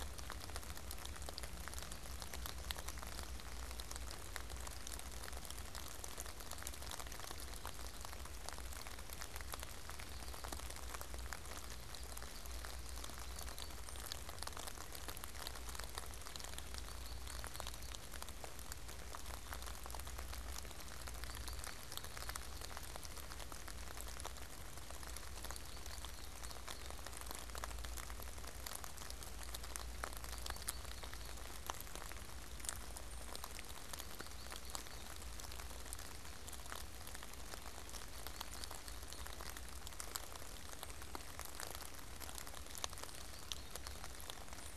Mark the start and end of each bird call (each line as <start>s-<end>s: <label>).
9.9s-44.6s: American Goldfinch (Spinus tristis)